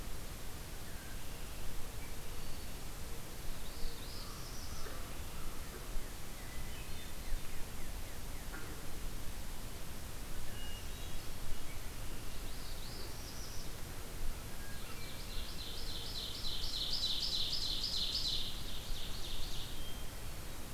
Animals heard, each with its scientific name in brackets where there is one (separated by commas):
Northern Parula (Setophaga americana), Hermit Thrush (Catharus guttatus), American Crow (Corvus brachyrhynchos), Red-winged Blackbird (Agelaius phoeniceus), Ovenbird (Seiurus aurocapilla), Northern Cardinal (Cardinalis cardinalis)